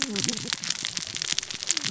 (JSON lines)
{"label": "biophony, cascading saw", "recorder": "SoundTrap 600 or HydroMoth"}